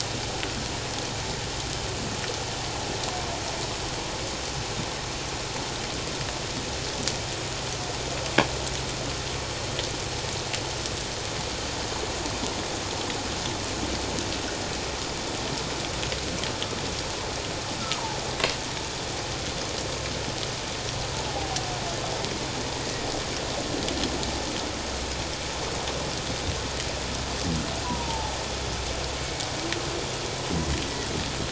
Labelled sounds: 21.3	21.6	humpback whale, 0.78 to 0.88 kHz
27.8	28.3	humpback whale, 0.78 to 1.1 kHz

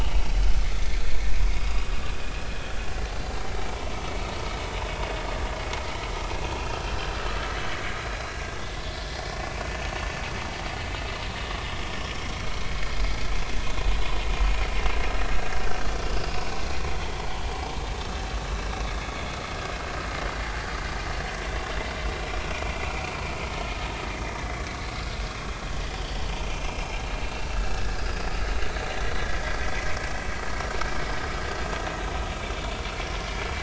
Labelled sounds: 1.5	1.8	vessel noise, 4.8 to 5.0 kHz
6.6	7.1	vessel noise, 2.6 to 2.8 kHz
9.0	9.4	vessel noise, 1.7 to 1.9 kHz
16.3	16.6	vessel noise, 1.4 to 1.6 kHz
19.1	19.3	vessel noise, 2.0 to 2.3 kHz
22.4	23.0	vessel noise, 2.1 to 2.6 kHz
24.2	24.5	vessel noise, 5.6 to 5.7 kHz
26.0	26.9	vessel noise, 2.6 to 3.3 kHz
28.0	28.2	vessel noise, 1.5 to 1.9 kHz
29.1	29.9	vessel noise, 1.8 to 5.5 kHz

